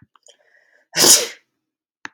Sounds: Sneeze